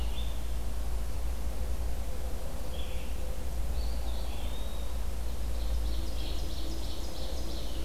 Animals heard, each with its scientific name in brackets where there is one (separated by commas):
Eastern Wood-Pewee (Contopus virens), Red-eyed Vireo (Vireo olivaceus), Ovenbird (Seiurus aurocapilla)